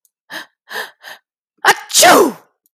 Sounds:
Sneeze